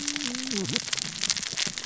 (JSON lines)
{"label": "biophony, cascading saw", "recorder": "SoundTrap 600 or HydroMoth"}